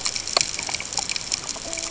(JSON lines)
{"label": "ambient", "recorder": "HydroMoth"}